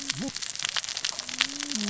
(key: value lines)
label: biophony, cascading saw
recorder: SoundTrap 600 or HydroMoth